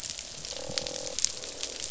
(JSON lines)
{"label": "biophony, croak", "recorder": "SoundTrap 500"}